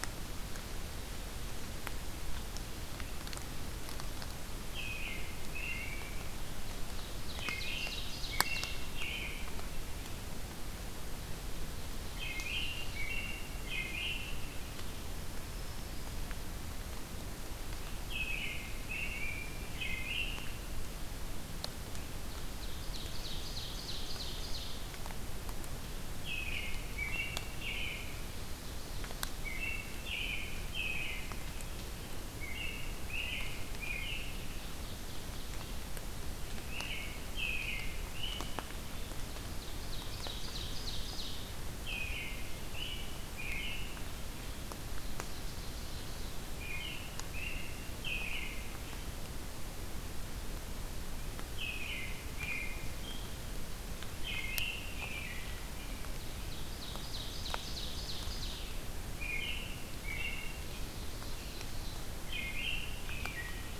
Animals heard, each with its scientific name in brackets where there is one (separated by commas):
Black-throated Green Warbler (Setophaga virens), Ovenbird (Seiurus aurocapilla), American Robin (Turdus migratorius)